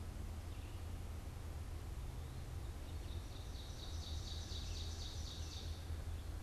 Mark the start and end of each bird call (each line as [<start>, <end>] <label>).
[2.47, 5.77] Ovenbird (Seiurus aurocapilla)
[4.27, 6.42] Red-eyed Vireo (Vireo olivaceus)